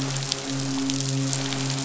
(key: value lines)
label: biophony, midshipman
recorder: SoundTrap 500